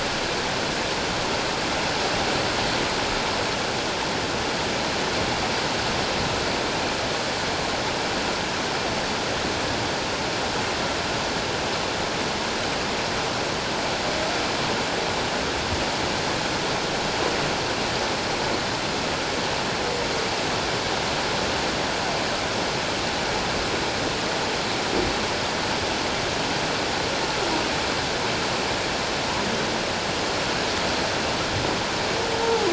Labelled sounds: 32.4	32.7	humpback whale, 0.78 to 0.97 kHz

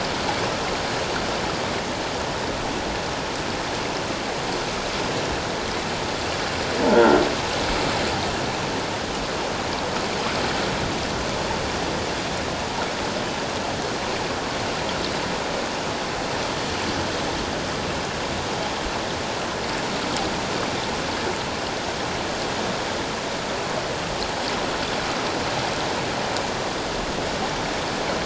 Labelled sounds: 6.8	7.2	croaking sound likely from a nearby submerged object, 0.84 to 1.7 kHz

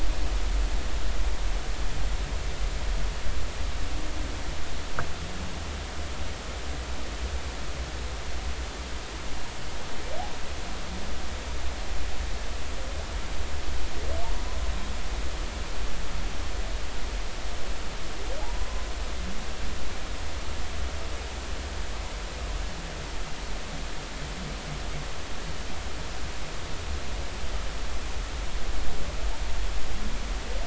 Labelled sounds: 14.2	14.6	humpback whale, 0.83 to 1.1 kHz
18.4	18.8	humpback whale, 0.80 to 1.1 kHz

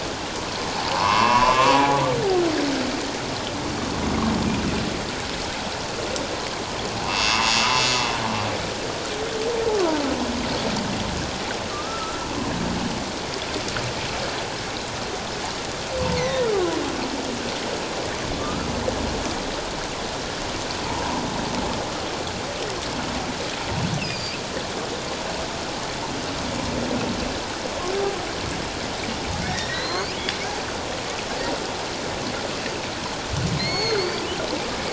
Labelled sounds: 0.9	2.0	humpback whale, 0.78 to 2.9 kHz
7.0	8.0	humpback whale, 2.6 to 6.6 kHz
11.7	12.3	humpback whale, 1.1 to 1.4 kHz
16.2	16.8	humpback whale, 0.94 to 2.2 kHz
18.4	18.7	humpback whale, 1.1 to 1.4 kHz
24.0	24.4	humpback whale, 4.6 to 5.5 kHz
29.4	30.1	humpback whale, 1.7 to 4.8 kHz
33.6	34.2	humpback whale, 1.8 to 6.7 kHz

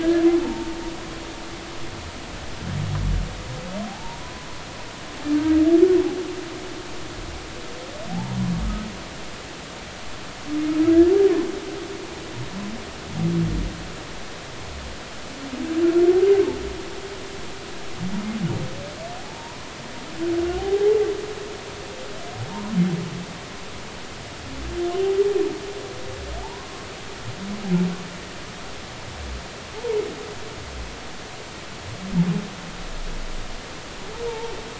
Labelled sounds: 0.0	0.7	humpback whale, 0.83 to 1.8 kHz
3.9	4.5	humpback whale, 0.80 to 1.1 kHz
5.4	5.6	humpback whale, 1.5 to 1.6 kHz
8.1	8.4	humpback whale, 0.80 to 1.0 kHz
19.3	19.7	humpback whale, 0.80 to 1.1 kHz
20.6	21.0	humpback whale, 0.80 to 0.93 kHz
26.4	26.8	humpback whale, 0.80 to 1.1 kHz
34.3	34.5	humpback whale, 0.83 to 0.99 kHz

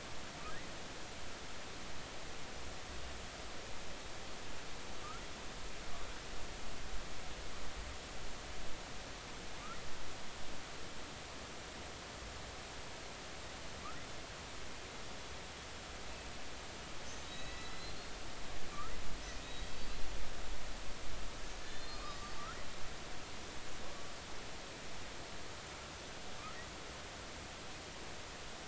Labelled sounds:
17.0	18.0	killer whale, Bigg's (transient), 1.9 to 6.6 kHz
19.4	20.0	killer whale, Bigg's (transient), 3.7 to 4.7 kHz
21.7	22.4	killer whale, Bigg's (transient), 1.1 to 4.5 kHz

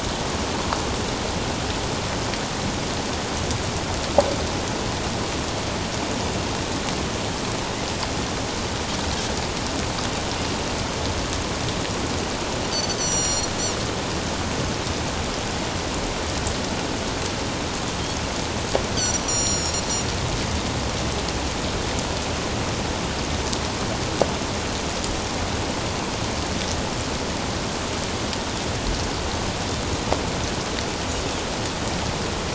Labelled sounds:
12.7	13.5	Pacific white-sided dolphin, 2.8 to 7.5 kHz
18.9	19.8	Pacific white-sided dolphin, 4.1 to 7.4 kHz

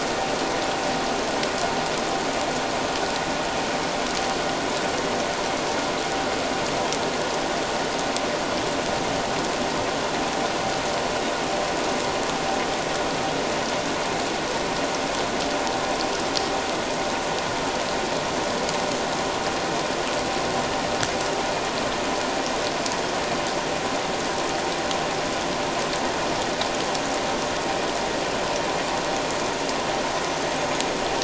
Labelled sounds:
30.6	30.8	humpback whale, 6.5 to 6.7 kHz

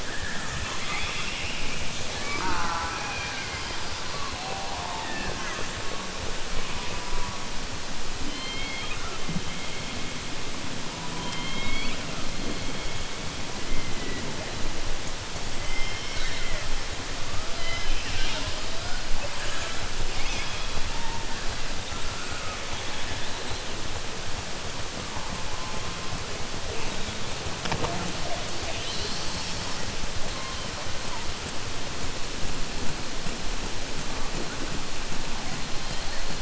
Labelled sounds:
0.0	1.8	killer whale, southern resident, 1.0 to 5.4 kHz
11.2	12.0	killer whale, southern resident, 0.98 to 4.5 kHz
15.6	16.7	killer whale, southern resident, 1.4 to 6.6 kHz

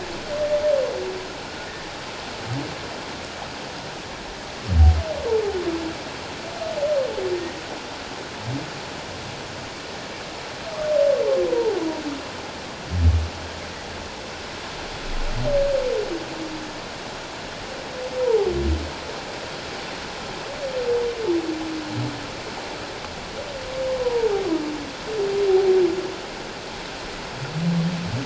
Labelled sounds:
18.2	18.5	humpback whale, 0.78 to 1.0 kHz
24.0	24.3	humpback whale, 0.81 to 1.0 kHz

